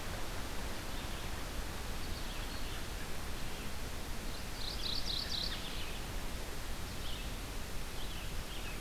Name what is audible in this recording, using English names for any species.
Red-eyed Vireo, Mourning Warbler